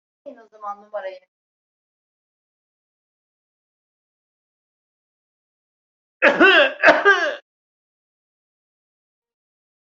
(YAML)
expert_labels:
- quality: ok
  cough_type: unknown
  dyspnea: false
  wheezing: false
  stridor: false
  choking: false
  congestion: false
  nothing: true
  diagnosis: healthy cough
  severity: pseudocough/healthy cough